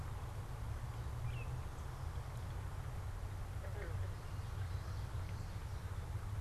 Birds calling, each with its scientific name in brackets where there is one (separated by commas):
Baltimore Oriole (Icterus galbula)